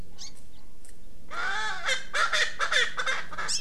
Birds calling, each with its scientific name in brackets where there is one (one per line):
Hawaii Amakihi (Chlorodrepanis virens)
Erckel's Francolin (Pternistis erckelii)